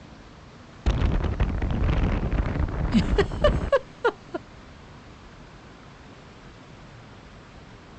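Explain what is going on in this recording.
At the start, wind can be heard. Over it, about 3 seconds in, someone giggles. A steady background noise persists.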